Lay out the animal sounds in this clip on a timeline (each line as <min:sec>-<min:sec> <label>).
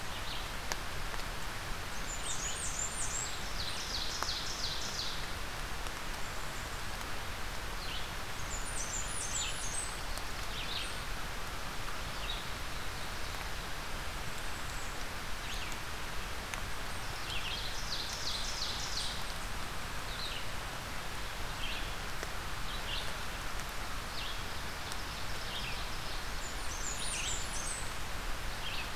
0:00.0-0:02.7 Red-eyed Vireo (Vireo olivaceus)
0:01.8-0:03.4 Blackburnian Warbler (Setophaga fusca)
0:03.1-0:05.2 Ovenbird (Seiurus aurocapilla)
0:07.6-0:29.0 Red-eyed Vireo (Vireo olivaceus)
0:08.2-0:09.9 Blackburnian Warbler (Setophaga fusca)
0:17.2-0:19.2 Ovenbird (Seiurus aurocapilla)
0:24.2-0:26.3 Ovenbird (Seiurus aurocapilla)
0:26.0-0:27.9 Blackburnian Warbler (Setophaga fusca)